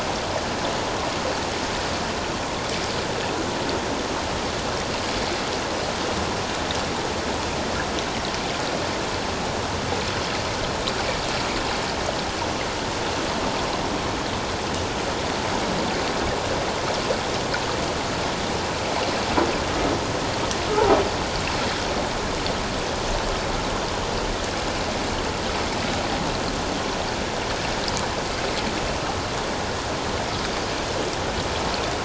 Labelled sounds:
20.7	20.9	croaking sound likely from a nearby submerged object, 1.2 to 1.5 kHz

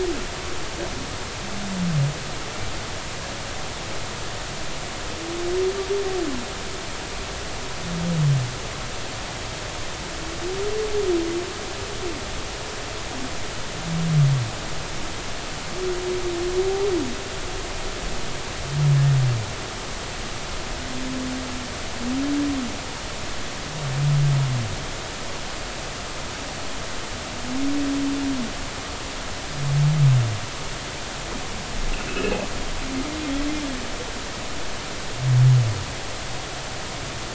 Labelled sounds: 32.1	32.4	humpback whale, 2.5 to 2.8 kHz

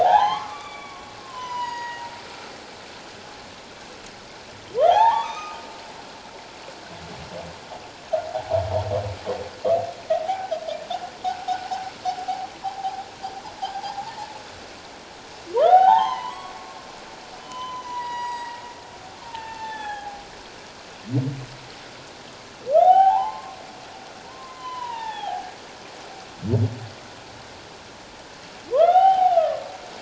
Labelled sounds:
0.0	2.1	humpback whale, 0.78 to 6.8 kHz
4.8	5.6	humpback whale, 0.78 to 6.3 kHz
8.3	8.6	humpback whale, 0.78 to 1.0 kHz
10.3	10.5	humpback whale, 0.78 to 0.88 kHz
15.6	16.5	humpback whale, 0.78 to 3.9 kHz
17.4	18.6	humpback whale, 0.88 to 7.8 kHz
19.3	20.2	humpback whale, 0.78 to 8.0 kHz
22.8	25.5	humpback whale, 0.78 to 3.7 kHz
28.7	29.4	humpback whale, 0.78 to 3.8 kHz

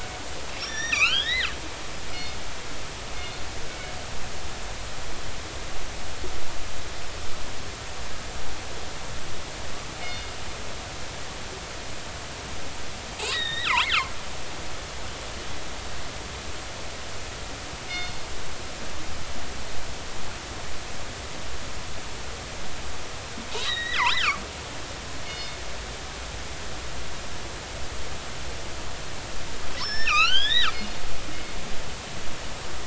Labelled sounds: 0.6	1.5	killer whale, northern resident, G clan, 1.1 to 6.1 kHz
2.1	2.4	killer whale, northern resident, G clan, 2.1 to 2.3 kHz
3.7	3.9	killer whale, northern resident, G clan, call N24ii, 2.1 to 2.3 kHz
10.0	10.3	killer whale, northern resident, G clan, call N24ii, 2.8 to 4.4 kHz
13.2	14.1	killer whale, northern resident, G clan, GG subclan, 0.86 to 4.0 kHz
17.9	18.2	killer whale, northern resident, G clan, call N24ii, 2.8 to 4.4 kHz
23.5	24.4	killer whale, northern resident, G clan, GG subclan, 0.90 to 5.2 kHz
25.2	25.6	killer whale, northern resident, G clan, call N24ii, 2.1 to 4.4 kHz
29.8	30.7	killer whale, northern resident, G clan, GG subclan, call N29, 1.1 to 5.8 kHz

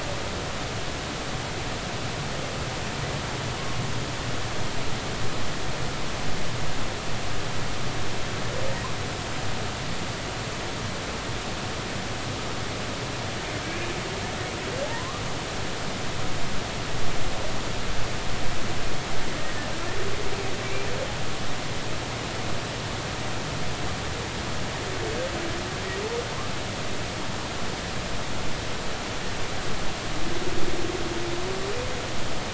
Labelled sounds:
13.6	13.9	humpback whale, 1.6 to 1.8 kHz
14.8	15.2	humpback whale, 0.83 to 1.2 kHz

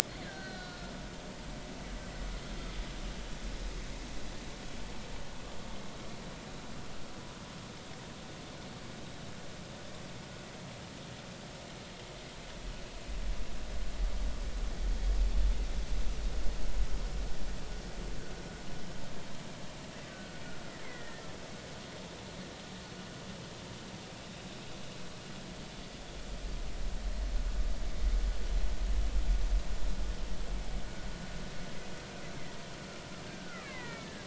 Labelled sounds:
0.3	0.9	killer whale, Bigg's (transient), 1.4 to 6.6 kHz
20.1	20.3	killer whale, Bigg's (transient), 1.3 to 1.6 kHz
20.8	21.2	killer whale, Bigg's (transient), 1.8 to 2.2 kHz
33.2	34.1	killer whale, Bigg's (transient), 0.93 to 2.5 kHz

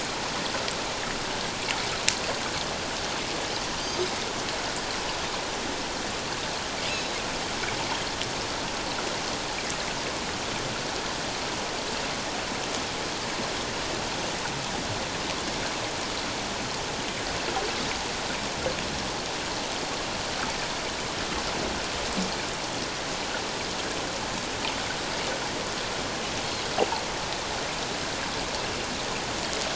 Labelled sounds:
3.8	4.1	Pacific white-sided dolphin, 6.2 to 6.5 kHz
6.9	7.2	Pacific white-sided dolphin, 3.9 to 4.0 kHz

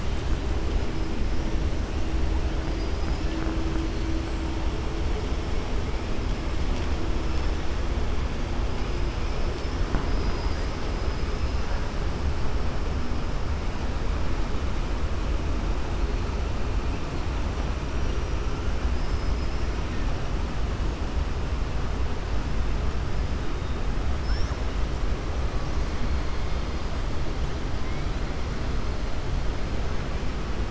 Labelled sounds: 2.6	3.3	killer whale, 4.5 to 5.4 kHz
18.9	19.7	killer whale, 4.9 to 5.7 kHz

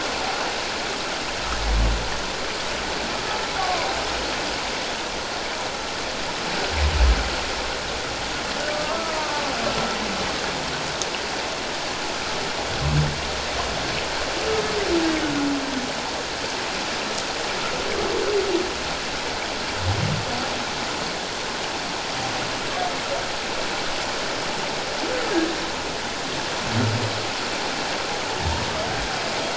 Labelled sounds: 3.6	3.9	humpback whale, 0.94 to 1.2 kHz
8.7	9.5	humpback whale, 0.88 to 1.4 kHz

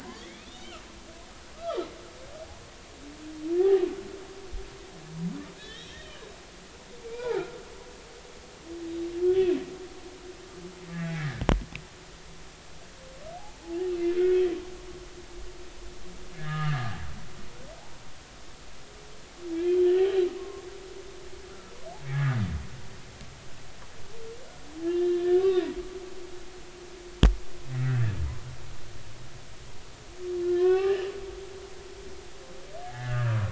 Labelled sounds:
1.5	1.8	humpback whale, 1.1 to 1.4 kHz
3.5	3.9	humpback whale, 0.80 to 1.9 kHz
5.6	5.9	humpback whale, 1.6 to 3.9 kHz
7.0	7.4	humpback whale, 0.80 to 2.5 kHz
9.3	9.5	humpback whale, 3.2 to 3.5 kHz
11.0	11.4	humpback whale, 1.5 to 2.1 kHz
13.4	13.7	humpback whale, 0.80 to 0.96 kHz
14.2	14.4	humpback whale, 2.1 to 2.2 kHz
16.3	16.9	humpback whale, 1.2 to 1.9 kHz
19.5	20.1	humpback whale, 1.7 to 2.6 kHz
20.4	20.6	humpback whale, 0.96 to 1.1 kHz
21.5	22.3	humpback whale, 1.2 to 2.0 kHz
24.8	25.8	humpback whale, 1.6 to 3.2 kHz
27.7	28.2	humpback whale, 1.2 to 2.0 kHz
30.5	31.1	humpback whale, 0.80 to 3.1 kHz
32.8	33.4	humpback whale, 1.1 to 2.0 kHz

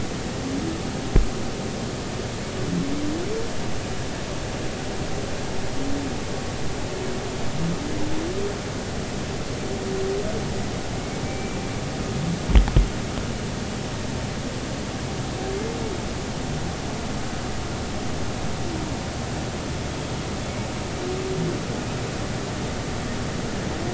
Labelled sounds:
11.2	11.7	humpback whale, 2.3 to 2.4 kHz

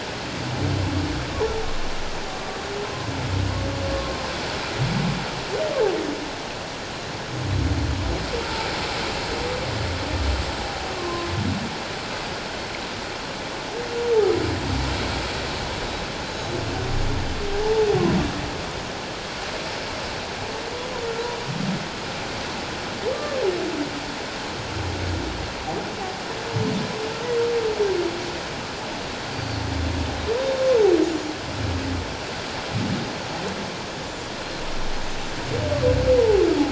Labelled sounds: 2.3	3.1	humpback whale, 0.94 to 1.2 kHz
8.4	8.7	humpback whale, 1.3 to 1.4 kHz
10.6	11.3	humpback whale, 0.78 to 1.2 kHz
16.2	16.6	Pacific white-sided dolphin, 3.9 to 4.1 kHz
23.1	23.4	humpback whale, 1.1 to 1.2 kHz
29.3	29.6	Pacific white-sided dolphin, 4.2 to 4.7 kHz

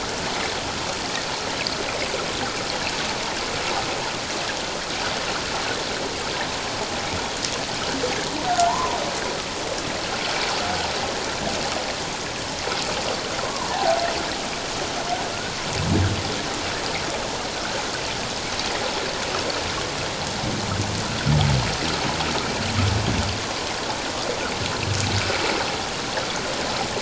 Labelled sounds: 8.7	9.0	humpback whale, 0.84 to 1.2 kHz
13.4	14.0	humpback whale, 0.78 to 1.2 kHz

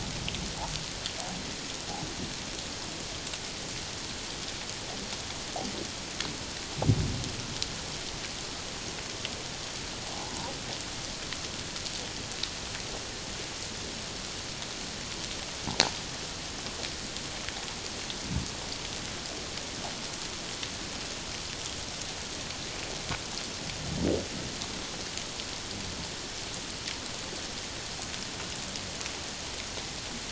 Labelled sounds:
10.1	10.3	humpback whale, 0.78 to 0.91 kHz

